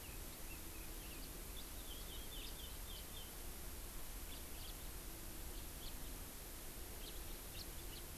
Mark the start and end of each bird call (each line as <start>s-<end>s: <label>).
1.6s-1.7s: House Finch (Haemorhous mexicanus)
1.9s-3.3s: Chinese Hwamei (Garrulax canorus)
2.4s-2.5s: House Finch (Haemorhous mexicanus)
4.3s-4.7s: House Finch (Haemorhous mexicanus)
5.8s-5.9s: House Finch (Haemorhous mexicanus)
7.0s-7.2s: House Finch (Haemorhous mexicanus)
7.5s-7.6s: House Finch (Haemorhous mexicanus)
7.9s-8.0s: House Finch (Haemorhous mexicanus)